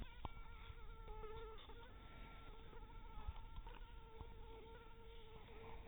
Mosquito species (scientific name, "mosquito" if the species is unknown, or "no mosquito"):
mosquito